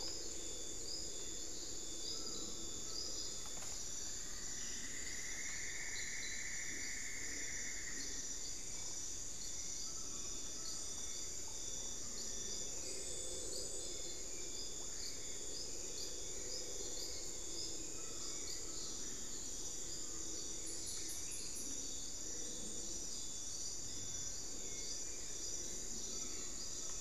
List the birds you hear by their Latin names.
Micrastur buckleyi, Dendrexetastes rufigula, Turdus hauxwelli